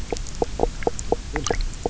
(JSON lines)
{"label": "biophony, knock croak", "recorder": "SoundTrap 300"}